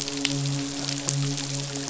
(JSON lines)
{"label": "biophony, midshipman", "recorder": "SoundTrap 500"}